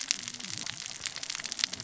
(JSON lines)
{"label": "biophony, cascading saw", "recorder": "SoundTrap 600 or HydroMoth"}